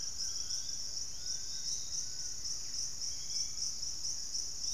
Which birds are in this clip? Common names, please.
Collared Trogon, Fasciated Antshrike, Piratic Flycatcher, Yellow-margined Flycatcher, Hauxwell's Thrush